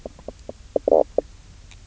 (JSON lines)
{"label": "biophony, knock croak", "recorder": "SoundTrap 300"}